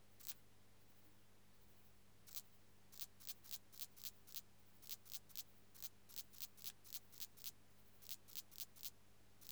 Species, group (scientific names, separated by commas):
Tessellana lagrecai, Orthoptera